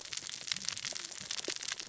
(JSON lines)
{"label": "biophony, cascading saw", "recorder": "SoundTrap 600 or HydroMoth"}